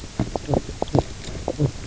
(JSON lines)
{"label": "biophony, knock croak", "recorder": "SoundTrap 300"}